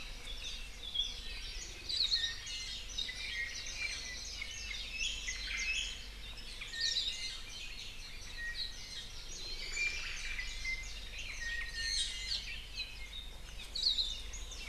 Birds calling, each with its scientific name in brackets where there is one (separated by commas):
Omao (Myadestes obscurus), Iiwi (Drepanis coccinea), Apapane (Himatione sanguinea), Hawaii Akepa (Loxops coccineus)